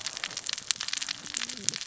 {"label": "biophony, cascading saw", "recorder": "SoundTrap 600 or HydroMoth"}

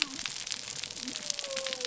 {"label": "biophony", "recorder": "SoundTrap 300"}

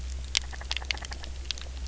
{"label": "biophony, grazing", "recorder": "SoundTrap 300"}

